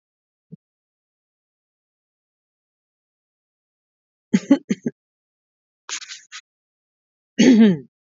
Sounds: Throat clearing